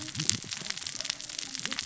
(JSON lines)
{"label": "biophony, cascading saw", "recorder": "SoundTrap 600 or HydroMoth"}